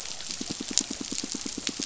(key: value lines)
label: biophony, pulse
recorder: SoundTrap 500